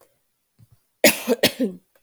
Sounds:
Cough